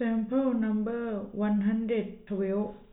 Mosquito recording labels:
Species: no mosquito; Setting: cup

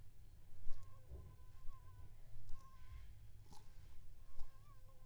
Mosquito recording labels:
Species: Aedes aegypti; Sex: female; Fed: unfed; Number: one; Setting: cup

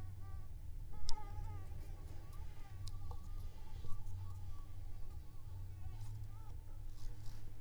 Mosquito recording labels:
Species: Anopheles arabiensis; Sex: female; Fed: unfed; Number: one; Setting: cup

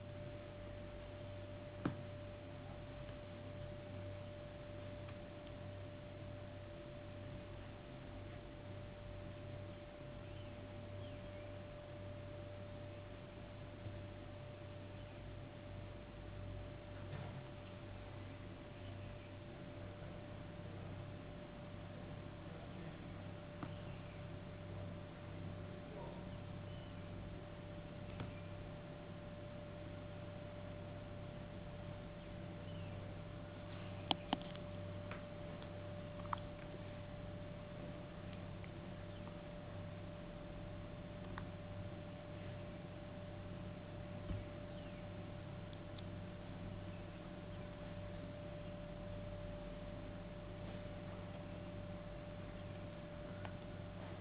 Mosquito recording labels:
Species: no mosquito; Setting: insect culture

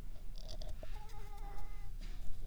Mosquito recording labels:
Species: Anopheles arabiensis; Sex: female; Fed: unfed; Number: one; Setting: cup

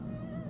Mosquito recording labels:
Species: Aedes albopictus; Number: one; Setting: insect culture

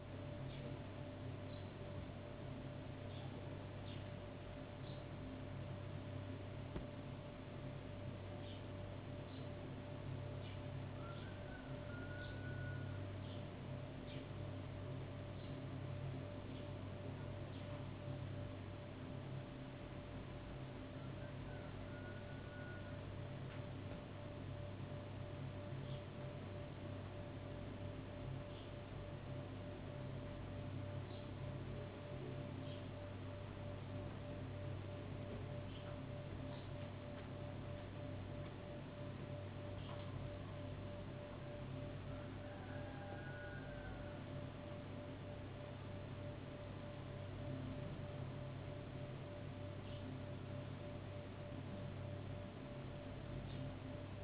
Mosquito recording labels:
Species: no mosquito; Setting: insect culture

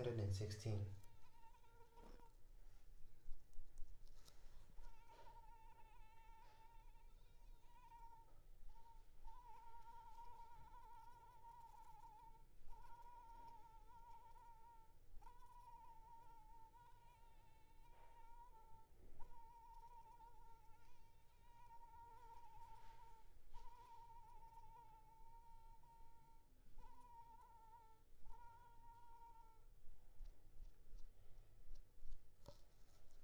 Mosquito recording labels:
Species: Anopheles arabiensis; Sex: female; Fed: unfed; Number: one; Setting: cup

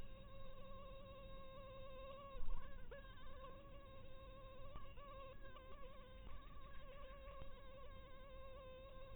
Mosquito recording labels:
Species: mosquito; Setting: cup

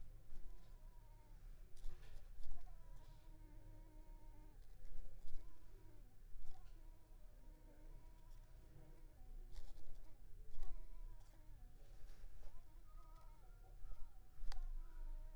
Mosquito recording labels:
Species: Anopheles coustani; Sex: female; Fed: unfed; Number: one; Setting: cup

